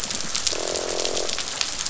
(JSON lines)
{"label": "biophony, croak", "recorder": "SoundTrap 500"}